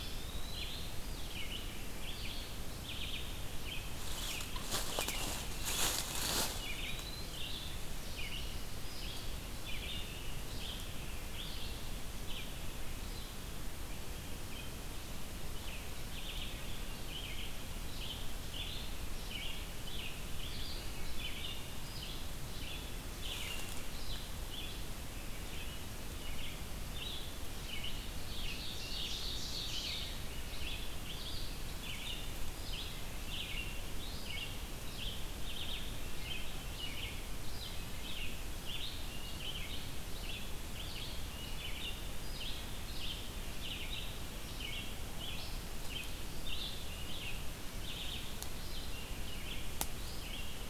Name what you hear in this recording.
Eastern Wood-Pewee, Red-eyed Vireo, Ovenbird